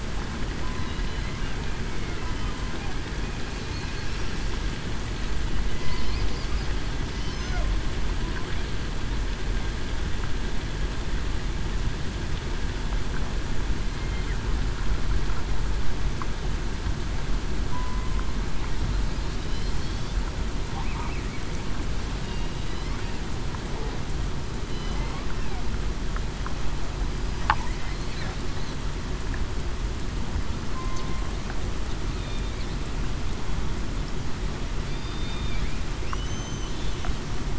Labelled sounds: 17.7	18.1	killer whale, southern resident, 0.96 to 1.0 kHz
30.7	31.1	killer whale, southern resident, 1.0 to 1.1 kHz
32.2	32.5	killer whale, southern resident, 3.5 to 3.7 kHz
34.9	35.6	killer whale, southern resident, 3.5 to 3.7 kHz
36.2	36.7	killer whale, southern resident, 2.9 to 3.1 kHz

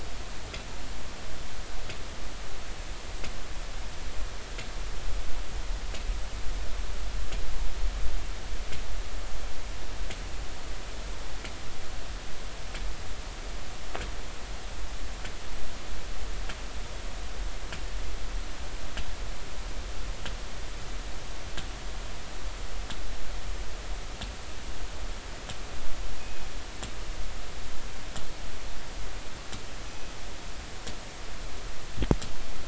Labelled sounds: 26.2	26.5	killer whale, northern resident, G clan, call N24ii, 2.5 to 2.6 kHz
29.9	30.1	killer whale, northern resident, G clan, call N24ii, 2.4 to 6.0 kHz

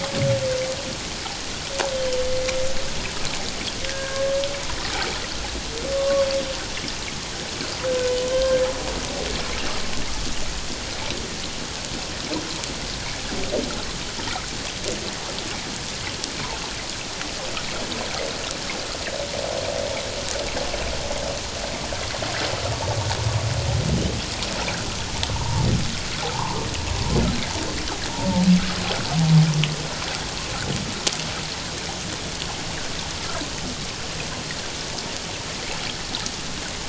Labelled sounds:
1.9	2.2	humpback whale, 2.9 to 3.2 kHz
3.9	4.3	humpback whale, 1.0 to 1.9 kHz
5.9	6.3	humpback whale, 0.97 to 1.2 kHz
8.3	8.6	humpback whale, 1.5 to 1.6 kHz
25.3	25.7	humpback whale, 0.84 to 1.1 kHz

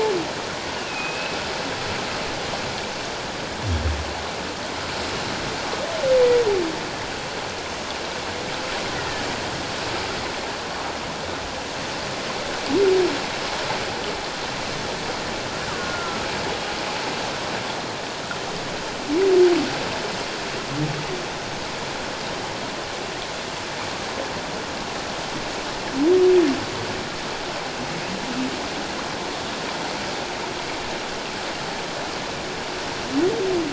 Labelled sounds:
0.9	1.4	humpback whale, 2.4 to 2.8 kHz
9.0	9.3	killer whale, Bigg's (transient), 1.7 to 2.0 kHz
15.7	16.2	killer whale, Bigg's (transient), 1.0 to 1.6 kHz

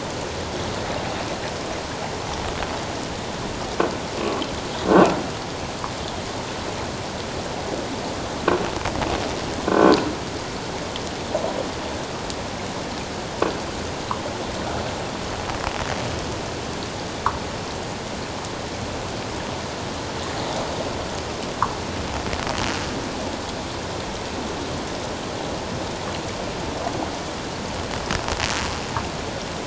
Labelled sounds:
4.9	5.2	croaking sound likely from a nearby submerged object, 1.3 to 1.6 kHz
9.7	10.0	croaking sound likely from a nearby submerged object, 1.4 to 1.6 kHz

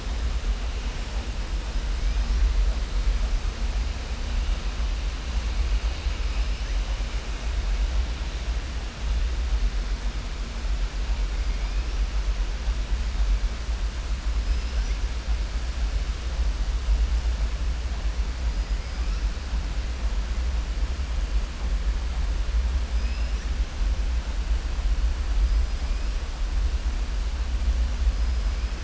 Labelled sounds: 14.4	15.0	killer whale, southern resident, 4.7 to 6.0 kHz
22.9	23.5	killer whale, southern resident, 5.0 to 6.0 kHz

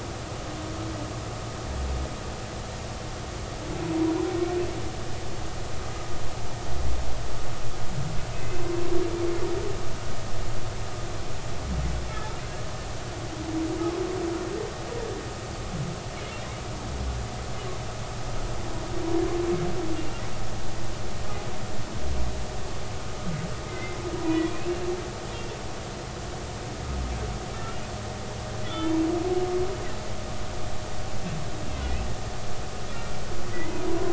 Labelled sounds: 23.7	24.7	humpback whale, 2.0 to 2.7 kHz
25.3	25.6	humpback whale, 2.6 to 2.8 kHz
27.5	27.8	humpback whale, 1.3 to 1.4 kHz
28.6	29.0	humpback whale, 3.0 to 3.6 kHz
33.5	33.8	humpback whale, 1.9 to 2.1 kHz

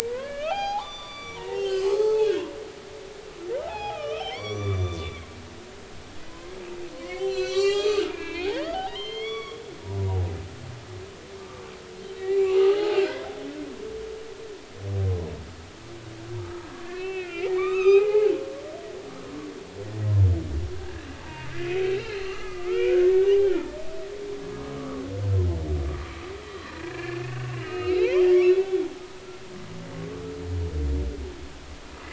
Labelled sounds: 0.1	2.5	humpback whale, 0.80 to 6.5 kHz
3.7	5.1	humpback whale, 0.80 to 6.0 kHz
6.3	6.5	humpback whale, 0.96 to 1.1 kHz
6.9	10.2	humpback whale, 0.80 to 7.6 kHz
12.1	13.0	humpback whale, 0.80 to 2.9 kHz
16.8	18.3	humpback whale, 0.80 to 4.0 kHz
19.0	19.3	humpback whale, 2.0 to 2.2 kHz
21.2	23.7	humpback whale, 0.80 to 4.3 kHz
24.7	25.0	humpback whale, 1.1 to 1.3 kHz
26.8	28.9	humpback whale, 0.80 to 4.2 kHz

